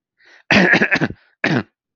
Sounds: Throat clearing